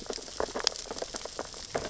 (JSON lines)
{"label": "biophony, sea urchins (Echinidae)", "recorder": "SoundTrap 600 or HydroMoth"}